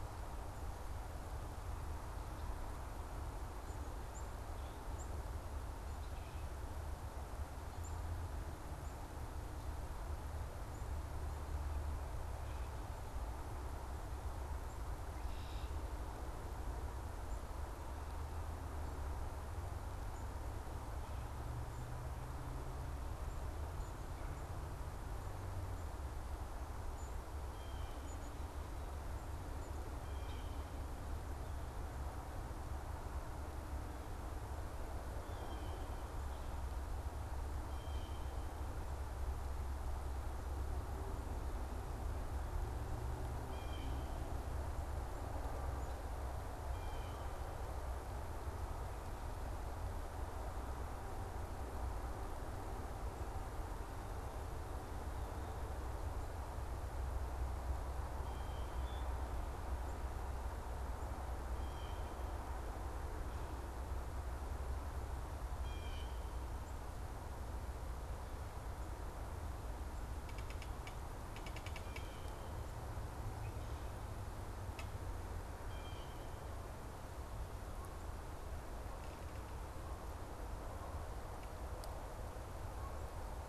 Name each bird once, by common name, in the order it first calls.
Black-capped Chickadee, Blue Jay, Common Grackle